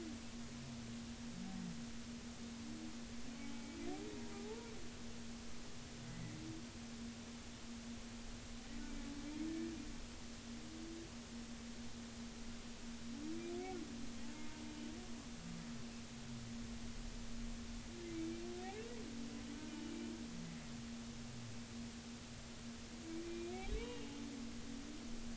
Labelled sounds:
3.4	3.8	humpback whale, 0.80 to 2.3 kHz
4.3	4.7	humpback whale, 0.80 to 0.99 kHz
6.1	6.4	humpback whale, 1.9 to 2.1 kHz
14.2	14.6	humpback whale, 0.83 to 0.99 kHz
23.2	24.1	humpback whale, 2.3 to 2.9 kHz

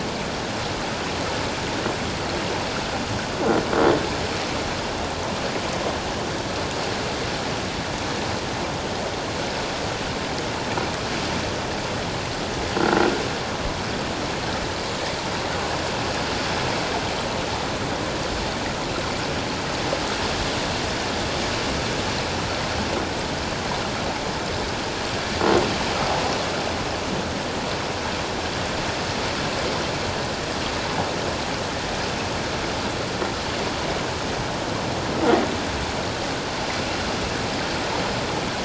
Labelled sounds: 12.8	13.1	croaking sound likely from a nearby submerged object, 1.3 to 1.5 kHz

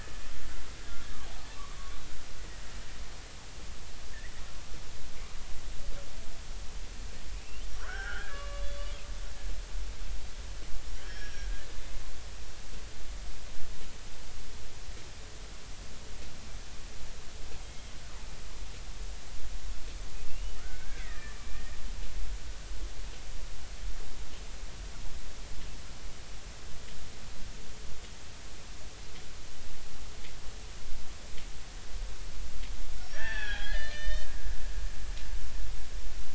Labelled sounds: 7.4	9.0	killer whale, Bigg's (transient), 0.80 to 5.6 kHz
11.0	11.5	killer whale, Bigg's (transient), 1.5 to 5.7 kHz
17.7	17.9	killer whale, Bigg's (transient), 2.1 to 2.2 kHz
20.3	21.7	killer whale, Bigg's (transient), 1.2 to 3.0 kHz
33.0	35.0	killer whale, Bigg's (transient), 0.80 to 6.2 kHz

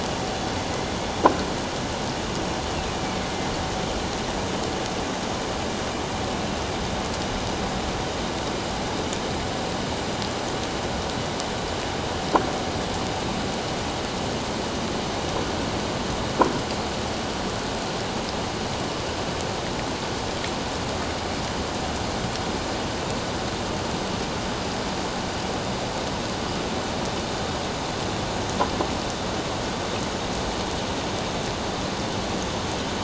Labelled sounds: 2.9	3.3	killer whale, northern resident, A clan, AA subclan, A04 pod, 2.1 to 2.6 kHz

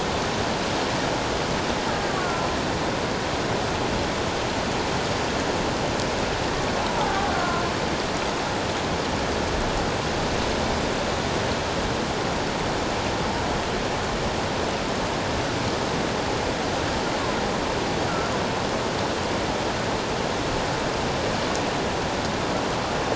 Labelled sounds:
2.1	2.5	killer whale, Bigg's (transient), 0.97 to 1.5 kHz
6.8	7.6	killer whale, Bigg's (transient), 0.78 to 1.5 kHz

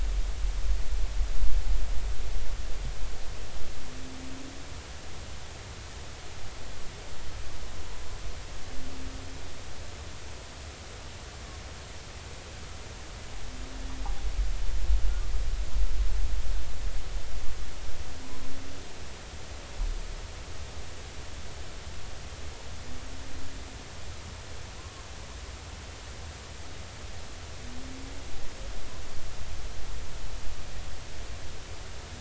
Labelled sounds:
24.8	25.0	humpback whale, 0.96 to 1.2 kHz

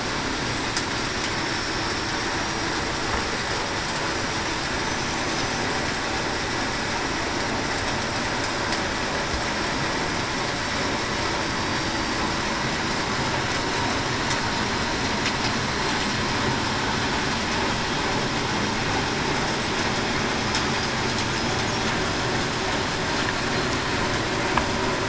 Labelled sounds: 1.3	1.7	killer whale, Bigg's (transient), 5.3 to 5.4 kHz
11.4	12.2	killer whale, Bigg's (transient), 4.6 to 4.7 kHz

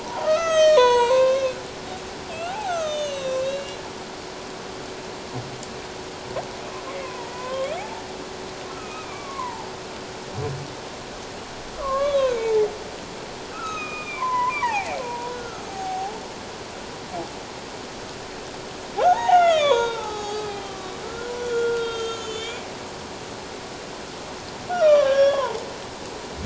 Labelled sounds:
0.0	3.8	humpback whale, 0.78 to 8.0 kHz
7.0	8.0	humpback whale, 0.78 to 1.6 kHz
8.7	9.7	humpback whale, 0.78 to 2.6 kHz
11.8	12.7	humpback whale, 0.81 to 3.5 kHz
13.5	16.2	humpback whale, 0.78 to 6.6 kHz
19.0	22.6	humpback whale, 0.78 to 7.3 kHz
24.7	25.6	humpback whale, 0.78 to 3.4 kHz

